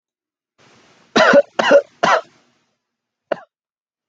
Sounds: Cough